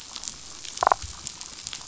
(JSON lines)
{"label": "biophony, damselfish", "recorder": "SoundTrap 500"}